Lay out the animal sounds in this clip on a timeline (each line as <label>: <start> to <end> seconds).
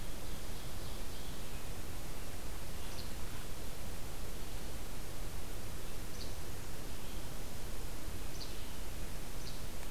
Ovenbird (Seiurus aurocapilla): 0.0 to 1.7 seconds
Least Flycatcher (Empidonax minimus): 2.7 to 3.3 seconds
Least Flycatcher (Empidonax minimus): 6.0 to 6.4 seconds
Least Flycatcher (Empidonax minimus): 8.1 to 8.6 seconds
Least Flycatcher (Empidonax minimus): 9.3 to 9.7 seconds